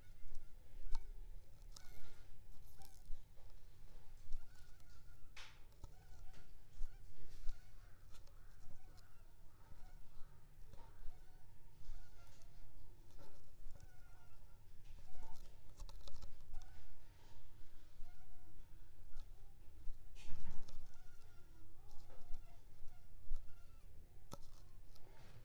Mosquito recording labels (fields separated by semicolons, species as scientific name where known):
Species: Anopheles funestus s.s.; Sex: female; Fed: unfed; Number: one; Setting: cup